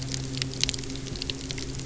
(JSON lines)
{"label": "anthrophony, boat engine", "recorder": "SoundTrap 300"}